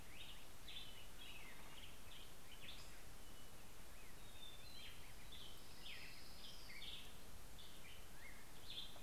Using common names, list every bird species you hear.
Black-headed Grosbeak, Hermit Thrush, Orange-crowned Warbler, Northern Flicker